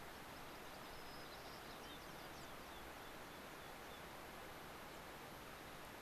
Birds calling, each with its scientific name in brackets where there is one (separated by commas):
White-crowned Sparrow (Zonotrichia leucophrys), American Pipit (Anthus rubescens)